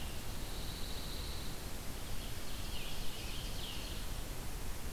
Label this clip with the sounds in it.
Pine Warbler, Ovenbird